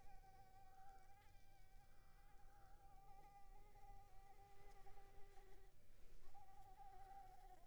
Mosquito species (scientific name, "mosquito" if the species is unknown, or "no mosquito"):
Anopheles arabiensis